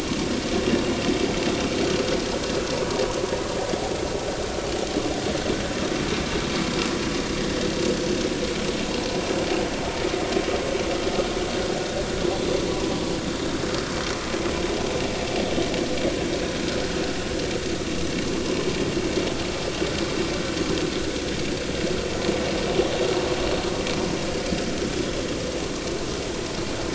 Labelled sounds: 17.7	18.0	vessel noise, 1.1 to 1.2 kHz

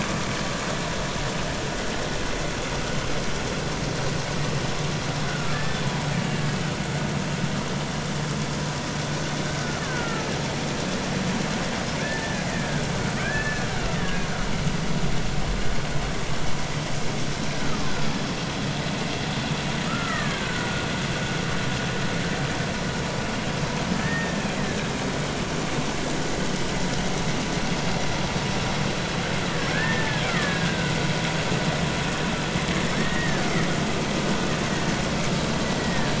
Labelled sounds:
5.3	6.4	killer whale, Bigg's (transient), 1.3 to 2.9 kHz
9.5	10.2	killer whale, Bigg's (transient), 1.3 to 1.9 kHz
12.0	12.8	killer whale, Bigg's (transient), 1.5 to 1.9 kHz
13.2	13.7	killer whale, Bigg's (transient), 1.5 to 1.8 kHz
17.6	18.1	killer whale, Bigg's (transient), 0.99 to 1.5 kHz
19.9	20.9	killer whale, Bigg's (transient), 1.1 to 2.0 kHz
24.0	24.5	killer whale, Bigg's (transient), 1.7 to 1.9 kHz
29.7	30.9	killer whale, Bigg's (transient), 1.1 to 2.1 kHz
33.0	33.5	killer whale, Bigg's (transient), 1.4 to 2.0 kHz
35.8	36.1	killer whale, Bigg's (transient), 1.6 to 2.0 kHz

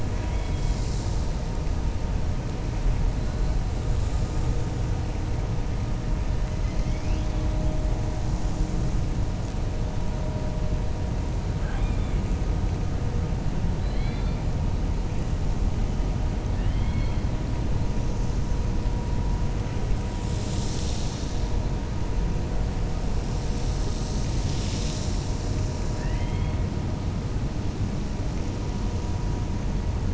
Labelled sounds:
16.5	17.2	killer whale, 1.4 to 4.4 kHz

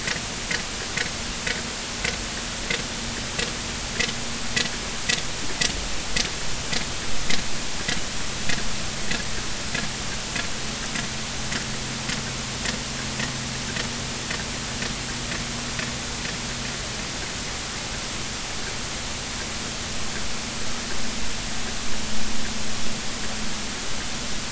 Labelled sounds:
9.0	9.3	sperm whale, 1.6 to 2.0 kHz

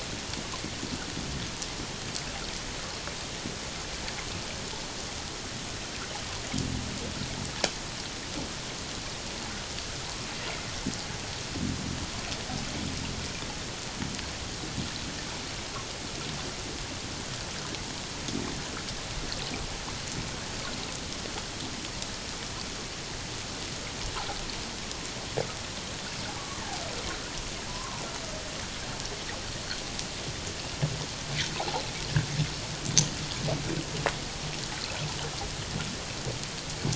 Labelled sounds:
26.3	26.6	humpback whale, 1.1 to 1.2 kHz
27.7	28.0	humpback whale, 0.88 to 1.1 kHz
31.6	31.8	water noise, 0.78 to 1.1 kHz

